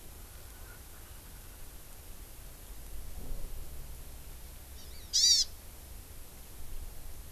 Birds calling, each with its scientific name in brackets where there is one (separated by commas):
Hawaii Amakihi (Chlorodrepanis virens), Erckel's Francolin (Pternistis erckelii)